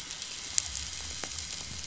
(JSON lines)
{"label": "biophony", "recorder": "SoundTrap 500"}
{"label": "anthrophony, boat engine", "recorder": "SoundTrap 500"}